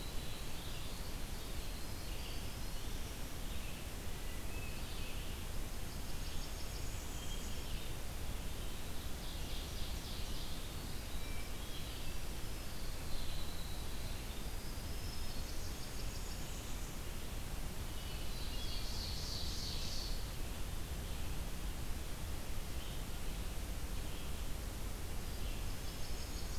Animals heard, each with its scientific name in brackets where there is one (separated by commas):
Blackburnian Warbler (Setophaga fusca), Red-eyed Vireo (Vireo olivaceus), Ovenbird (Seiurus aurocapilla), Winter Wren (Troglodytes hiemalis), Hermit Thrush (Catharus guttatus)